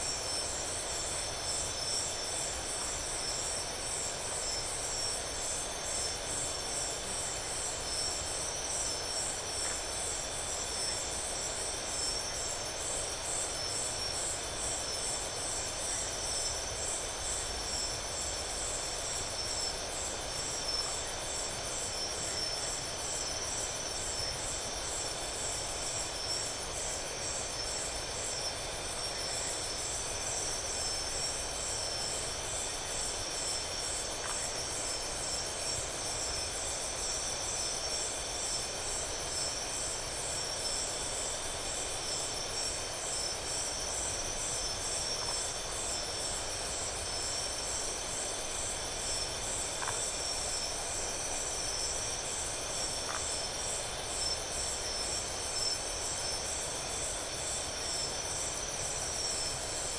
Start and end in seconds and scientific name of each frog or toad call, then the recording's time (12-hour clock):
9.6	9.9	Phyllomedusa distincta
34.2	34.5	Phyllomedusa distincta
49.7	50.0	Phyllomedusa distincta
53.0	53.3	Phyllomedusa distincta
10:30pm